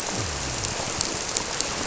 {"label": "biophony", "recorder": "SoundTrap 300"}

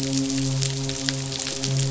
{"label": "biophony, midshipman", "recorder": "SoundTrap 500"}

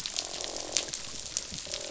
{"label": "biophony, croak", "recorder": "SoundTrap 500"}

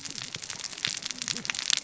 {"label": "biophony, cascading saw", "recorder": "SoundTrap 600 or HydroMoth"}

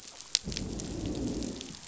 {"label": "biophony, growl", "recorder": "SoundTrap 500"}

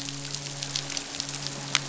{"label": "biophony, midshipman", "recorder": "SoundTrap 500"}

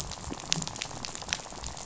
{"label": "biophony, rattle", "recorder": "SoundTrap 500"}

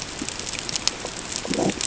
{"label": "ambient", "recorder": "HydroMoth"}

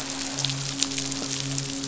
{"label": "biophony, midshipman", "recorder": "SoundTrap 500"}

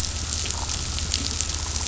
{"label": "anthrophony, boat engine", "recorder": "SoundTrap 500"}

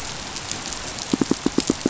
{"label": "biophony, pulse", "recorder": "SoundTrap 500"}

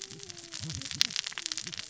{"label": "biophony, cascading saw", "recorder": "SoundTrap 600 or HydroMoth"}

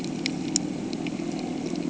{"label": "anthrophony, boat engine", "recorder": "HydroMoth"}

